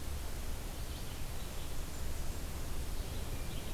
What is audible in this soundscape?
Red-eyed Vireo, Blackburnian Warbler